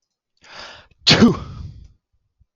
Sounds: Sneeze